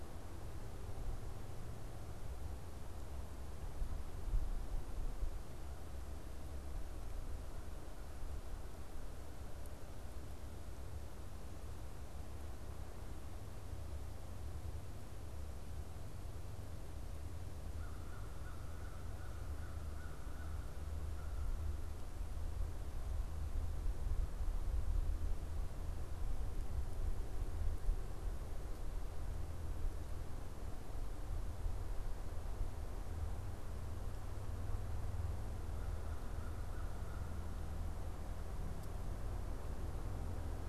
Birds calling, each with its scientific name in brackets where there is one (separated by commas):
American Crow (Corvus brachyrhynchos)